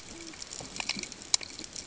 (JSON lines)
{"label": "ambient", "recorder": "HydroMoth"}